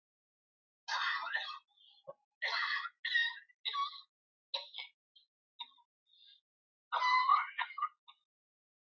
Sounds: Cough